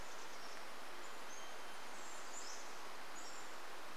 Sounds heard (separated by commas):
Chestnut-backed Chickadee call, Pacific-slope Flycatcher song, Varied Thrush song